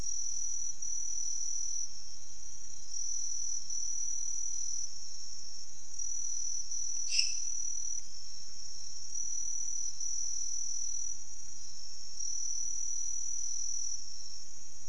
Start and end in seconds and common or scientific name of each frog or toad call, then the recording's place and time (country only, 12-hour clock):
6.9	7.5	lesser tree frog
Brazil, 3:15am